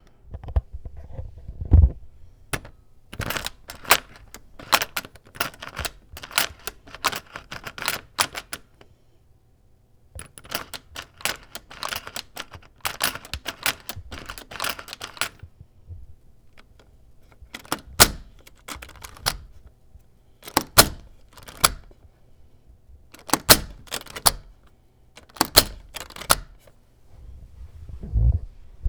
Are the same words shouted out?
no